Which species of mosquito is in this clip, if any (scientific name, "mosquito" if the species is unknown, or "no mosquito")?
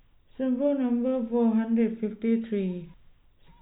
no mosquito